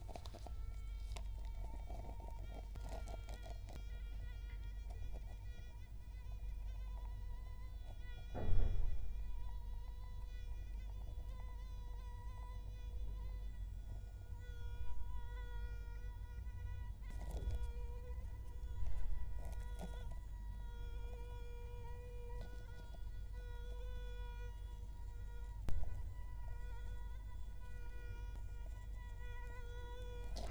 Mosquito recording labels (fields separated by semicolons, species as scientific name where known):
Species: Culex quinquefasciatus; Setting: cup